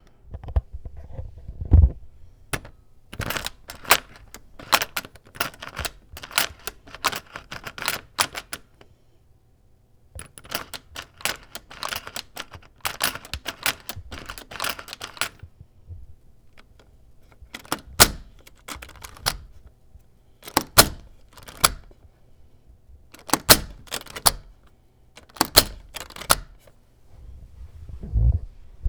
Is there a person talking?
no